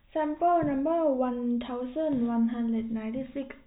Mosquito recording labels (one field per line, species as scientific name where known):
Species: no mosquito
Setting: cup